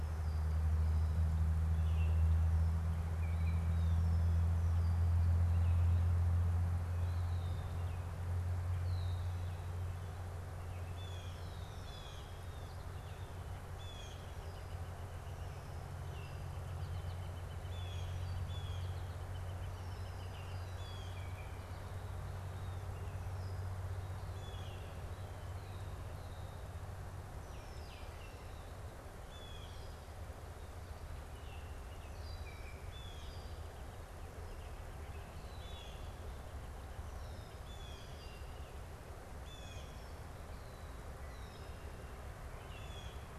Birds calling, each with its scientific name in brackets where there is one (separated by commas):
Baltimore Oriole (Icterus galbula), Blue Jay (Cyanocitta cristata), Eastern Phoebe (Sayornis phoebe), Red-winged Blackbird (Agelaius phoeniceus), Northern Flicker (Colaptes auratus)